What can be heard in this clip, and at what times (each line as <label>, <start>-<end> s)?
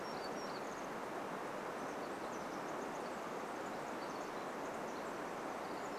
Townsend's Warbler song, 0-2 s
Pacific Wren song, 0-6 s